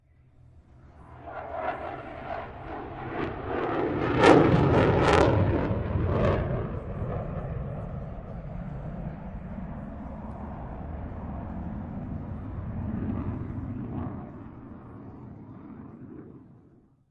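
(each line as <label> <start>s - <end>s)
An airplane flies overhead, getting louder then quieter. 0.0s - 17.1s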